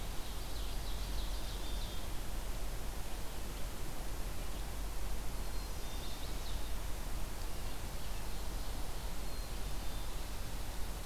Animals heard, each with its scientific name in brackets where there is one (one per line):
Chestnut-sided Warbler (Setophaga pensylvanica)
Black-capped Chickadee (Poecile atricapillus)
Ovenbird (Seiurus aurocapilla)